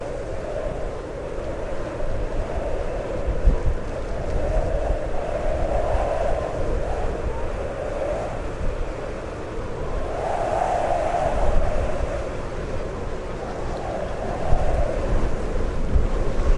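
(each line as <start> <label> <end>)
0.0 Strong wind blowing in nature. 16.6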